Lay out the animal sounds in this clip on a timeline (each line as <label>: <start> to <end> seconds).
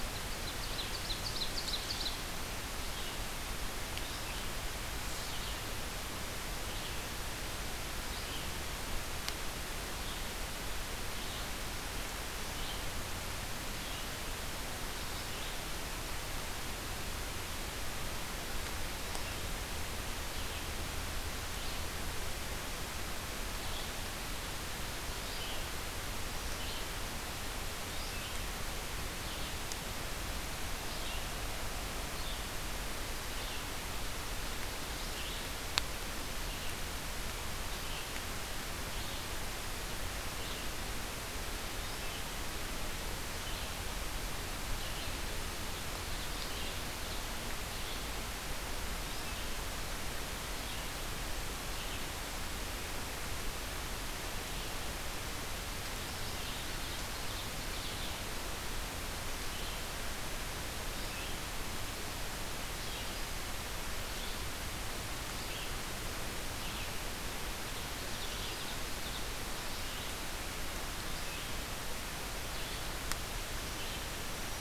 Red-eyed Vireo (Vireo olivaceus): 0.0 to 16.1 seconds
Ovenbird (Seiurus aurocapilla): 0.0 to 2.7 seconds
Red-eyed Vireo (Vireo olivaceus): 23.4 to 74.6 seconds
Black-throated Green Warbler (Setophaga virens): 74.0 to 74.6 seconds